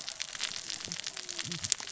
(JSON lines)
{"label": "biophony, cascading saw", "recorder": "SoundTrap 600 or HydroMoth"}